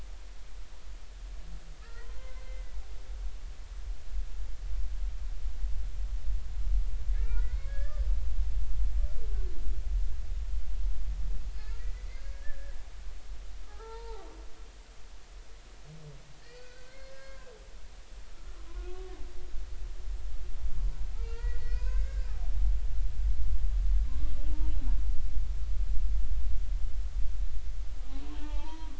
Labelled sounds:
0.0	0.2	humpback whale, 2.1 to 2.6 kHz
1.8	2.8	humpback whale, 0.90 to 2.1 kHz
7.1	8.0	humpback whale, 1.3 to 2.4 kHz
11.8	12.8	humpback whale, 1.6 to 5.0 kHz
13.6	14.3	humpback whale, 0.80 to 4.2 kHz
16.4	17.5	humpback whale, 0.99 to 5.2 kHz
18.3	18.6	humpback whale, 1.2 to 1.5 kHz
21.2	22.3	humpback whale, 0.96 to 5.2 kHz
24.5	24.7	humpback whale, 0.86 to 0.99 kHz
28.3	28.9	humpback whale, 0.83 to 2.8 kHz

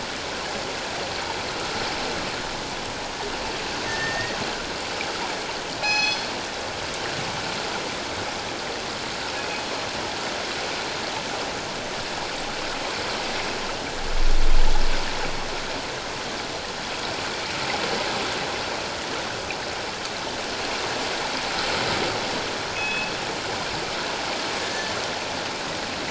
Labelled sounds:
3.9	4.4	killer whale, northern resident, G clan, call N24ii, 1.7 to 7.9 kHz
5.8	6.3	killer whale, northern resident, G clan, call N24ii, 0.78 to 6.1 kHz
9.4	9.6	killer whale, northern resident, G clan, call N24ii, 2.5 to 2.6 kHz
22.7	23.1	killer whale, northern resident, G clan, call N24ii, 2.5 to 3.5 kHz
24.6	24.9	killer whale, northern resident, G clan, call N24ii, 1.7 to 1.8 kHz

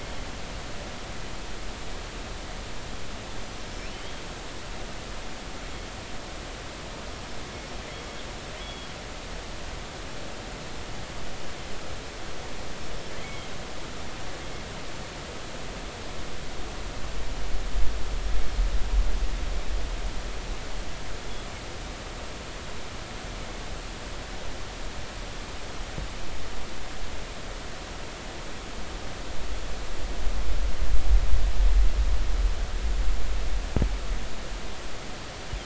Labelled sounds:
3.7	4.2	killer whale, northern resident, G clan, GI subclan, call N23i, 2.8 to 5.4 kHz
8.6	8.9	killer whale, northern resident, G clan, GI subclan, call N23i, 3.2 to 3.5 kHz
13.2	13.5	killer whale, northern resident, G clan, GI subclan, call N23i, 2.0 to 2.3 kHz

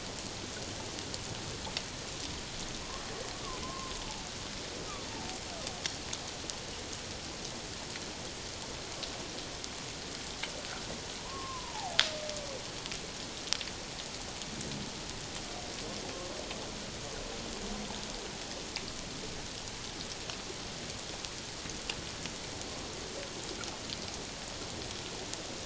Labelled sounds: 3.3	3.9	humpback whale, 0.97 to 1.2 kHz
11.2	12.0	humpback whale, 0.78 to 1.2 kHz

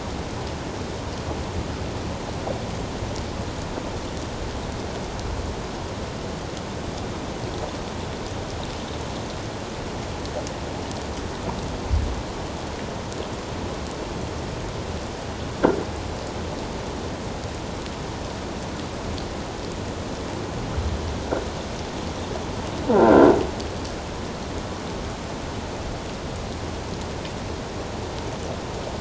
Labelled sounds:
22.9	23.3	croaking sound likely from a nearby submerged object, 1.3 to 1.7 kHz

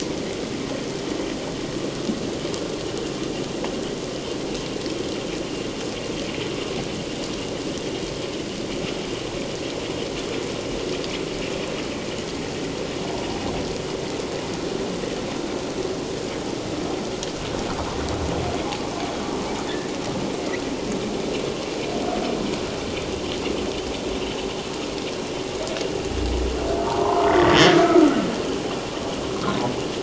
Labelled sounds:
27.0	27.8	humpback whale, 0.81 to 2.1 kHz

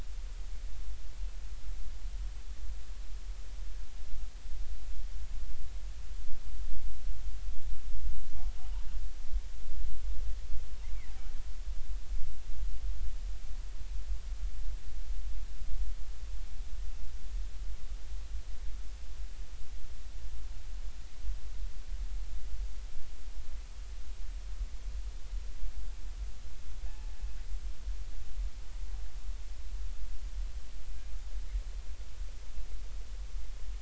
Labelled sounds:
26.9	27.1	killer whale, northern resident, G clan, 0.80 to 0.90 kHz

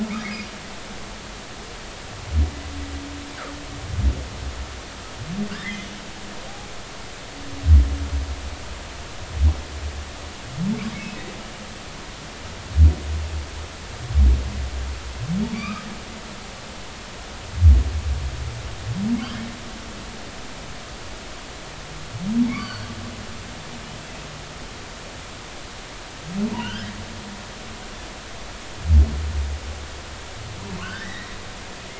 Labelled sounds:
0.2	0.5	humpback whale, 1.9 to 2.2 kHz
5.5	5.9	humpback whale, 1.4 to 2.2 kHz
11.0	11.3	humpback whale, 2.5 to 2.7 kHz
15.5	15.9	humpback whale, 1.1 to 2.6 kHz
22.5	22.9	humpback whale, 1.1 to 4.7 kHz
26.6	26.9	humpback whale, 1.4 to 3.3 kHz
30.8	31.3	humpback whale, 1.2 to 2.0 kHz

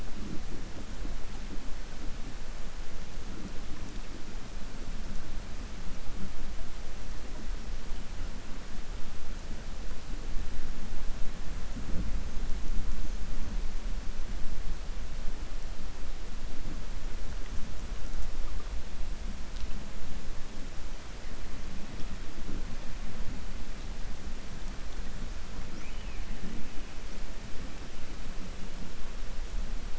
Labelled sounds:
25.7	26.2	killer whale, southern resident, 1.4 to 3.3 kHz

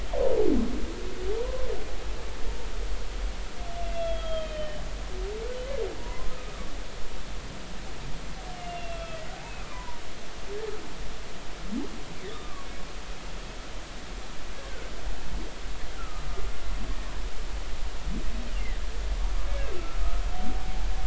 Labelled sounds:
1.4	1.7	humpback whale, 0.96 to 1.1 kHz
3.9	4.8	humpback whale, 1.2 to 3.4 kHz
6.0	6.3	humpback whale, 0.93 to 1.1 kHz
8.5	9.2	humpback whale, 2.6 to 3.4 kHz
9.7	10.0	humpback whale, 0.90 to 1.2 kHz
12.3	12.7	humpback whale, 1.1 to 1.3 kHz
16.0	16.2	humpback whale, 1.2 to 1.4 kHz
19.7	20.0	humpback whale, 1.3 to 1.4 kHz

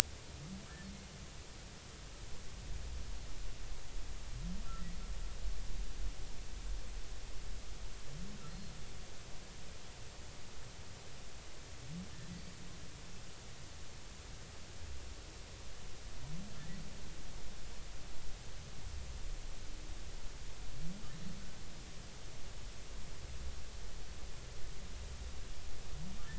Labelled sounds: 8.5	8.7	humpback whale, 4.2 to 4.4 kHz

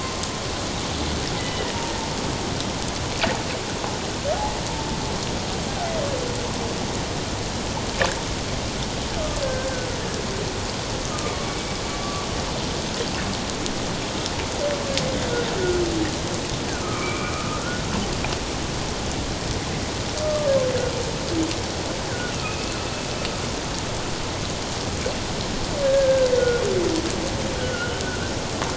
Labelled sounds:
1.4	1.7	humpback whale, 2.8 to 3.0 kHz
9.4	9.7	humpback whale, 1.5 to 1.7 kHz
11.1	11.7	humpback whale, 1.0 to 2.4 kHz
16.8	17.8	humpback whale, 1.2 to 2.5 kHz
20.2	20.5	humpback whale, 1.1 to 1.3 kHz
22.1	22.8	humpback whale, 1.4 to 2.8 kHz
25.8	26.6	humpback whale, 1.4 to 1.7 kHz
27.6	28.3	humpback whale, 1.3 to 1.6 kHz

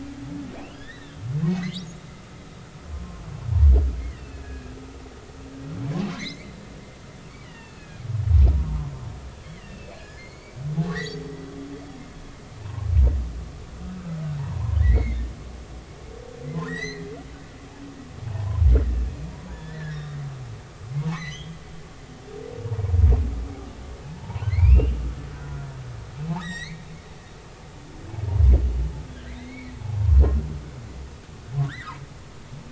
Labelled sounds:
0.7	1.9	humpback whale, 1.6 to 3.8 kHz
2.9	4.7	humpback whale, 0.99 to 3.0 kHz
6.1	6.5	humpback whale, 1.8 to 4.6 kHz
7.4	8.0	humpback whale, 1.7 to 4.8 kHz
9.4	10.6	humpback whale, 1.6 to 4.6 kHz
10.8	11.3	humpback whale, 1.5 to 6.1 kHz
12.6	12.9	humpback whale, 0.80 to 1.1 kHz
14.4	15.2	humpback whale, 0.80 to 2.3 kHz
16.7	17.1	humpback whale, 1.7 to 8.0 kHz
18.3	18.6	humpback whale, 0.80 to 1.1 kHz
19.3	20.2	humpback whale, 0.83 to 3.8 kHz
21.1	21.6	humpback whale, 1.8 to 6.4 kHz
24.0	24.9	humpback whale, 0.83 to 2.9 kHz
26.4	26.9	humpback whale, 1.6 to 7.9 kHz
29.4	29.7	humpback whale, 1.9 to 2.4 kHz
31.7	32.0	humpback whale, 1.2 to 2.1 kHz

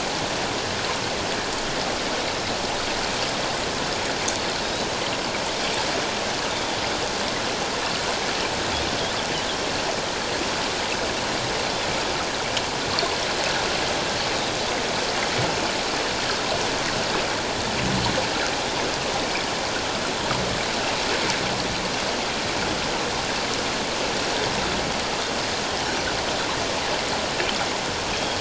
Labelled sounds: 6.5	6.7	Pacific white-sided dolphin, 3.4 to 3.7 kHz
28.1	28.3	Pacific white-sided dolphin, 3.2 to 3.3 kHz

